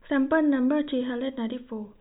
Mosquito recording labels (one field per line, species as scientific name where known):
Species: no mosquito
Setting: cup